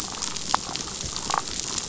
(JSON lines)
{"label": "biophony, damselfish", "recorder": "SoundTrap 500"}